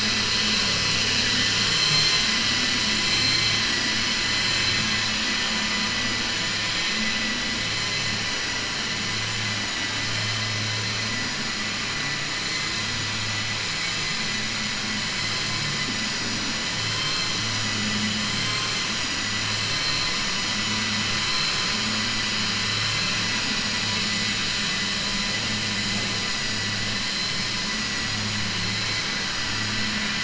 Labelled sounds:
16.9	17.3	vessel noise, 2.3 to 4.2 kHz
18.3	18.8	vessel noise, 6.2 to 7.5 kHz

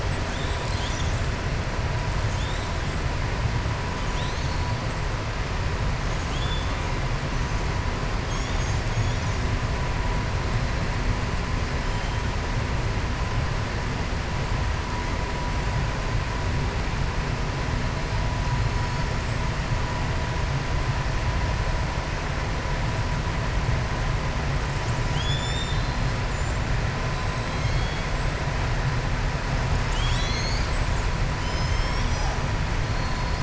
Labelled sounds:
2.3	2.7	killer whale, southern resident, 3.1 to 4.1 kHz
6.2	6.7	killer whale, southern resident, 2.7 to 3.6 kHz
25.0	26.0	killer whale, southern resident, 3.0 to 7.3 kHz
27.4	28.0	killer whale, southern resident, 2.7 to 4.5 kHz

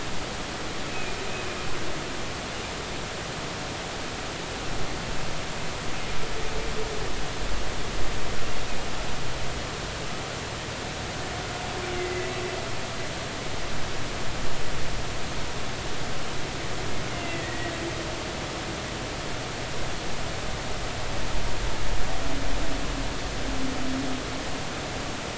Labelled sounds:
0.9	1.6	humpback whale, 2.4 to 2.6 kHz
12.0	12.3	humpback whale, 1.9 to 2.1 kHz
17.1	17.7	humpback whale, 1.8 to 2.9 kHz

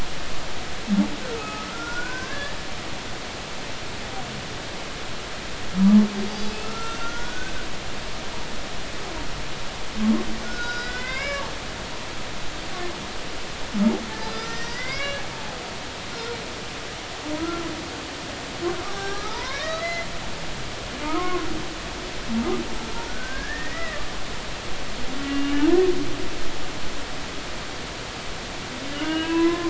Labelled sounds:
1.4	2.5	humpback whale, 0.96 to 2.6 kHz
6.3	7.5	humpback whale, 1.2 to 6.2 kHz
10.4	11.5	humpback whale, 0.99 to 5.9 kHz
14.3	15.2	humpback whale, 1.3 to 6.2 kHz
16.1	16.4	humpback whale, 1.3 to 1.5 kHz
17.4	17.7	humpback whale, 1.2 to 1.4 kHz
18.9	20.1	humpback whale, 0.80 to 5.9 kHz
21.0	21.4	humpback whale, 0.86 to 2.2 kHz
23.1	24.0	humpback whale, 1.4 to 2.0 kHz
25.3	25.7	humpback whale, 2.8 to 3.0 kHz
28.9	29.6	humpback whale, 0.93 to 3.0 kHz

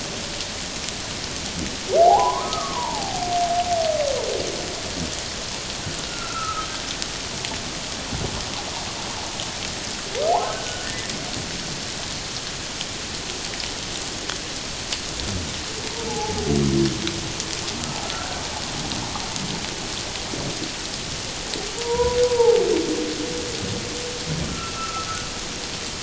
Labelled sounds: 2.0	3.3	humpback whale, 0.78 to 1.3 kHz
6.1	6.7	humpback whale, 1.2 to 1.5 kHz
10.3	11.1	humpback whale, 0.78 to 1.8 kHz
15.9	16.5	humpback whale, 0.78 to 0.97 kHz
18.0	18.4	humpback whale, 1.3 to 1.7 kHz
21.8	22.6	humpback whale, 0.78 to 1.1 kHz
24.5	25.1	humpback whale, 1.2 to 2.8 kHz

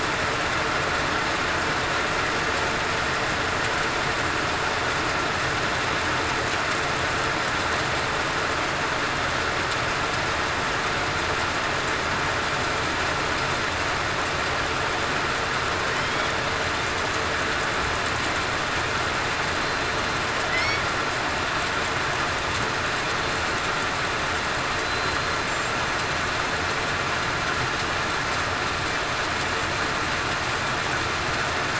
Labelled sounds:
15.9	16.3	killer whale, southern resident, 3.0 to 3.4 kHz
24.8	25.4	killer whale, southern resident, 3.9 to 4.1 kHz

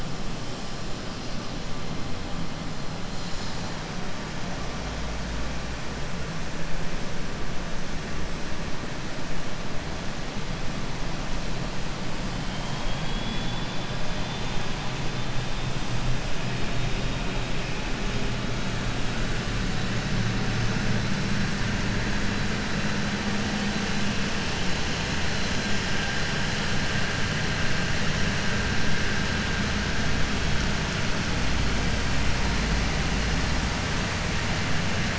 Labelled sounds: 12.4	13.9	vessel noise, 2.2 to 4.1 kHz

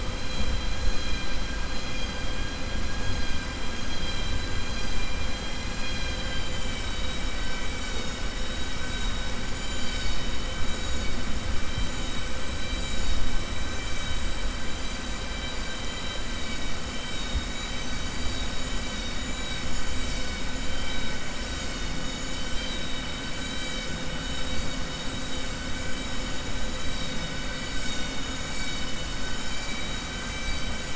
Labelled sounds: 3.9	4.4	vessel noise, 2.4 to 4.9 kHz

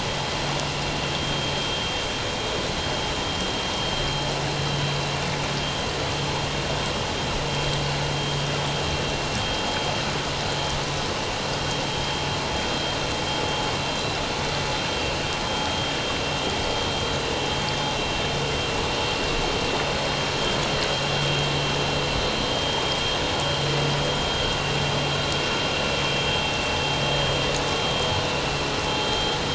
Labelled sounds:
1.2	1.5	vessel noise, 3.1 to 3.2 kHz

